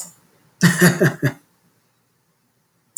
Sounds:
Laughter